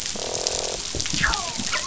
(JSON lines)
{"label": "biophony, croak", "recorder": "SoundTrap 500"}